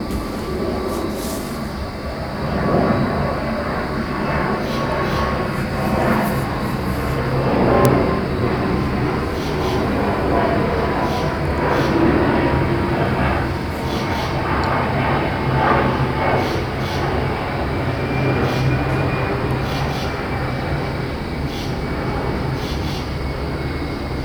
What is moving?
airplane